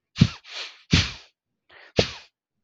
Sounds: Sniff